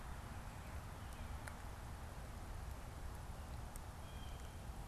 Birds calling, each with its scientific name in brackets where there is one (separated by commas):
Blue Jay (Cyanocitta cristata)